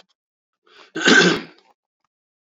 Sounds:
Throat clearing